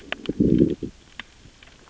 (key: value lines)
label: biophony, growl
recorder: SoundTrap 600 or HydroMoth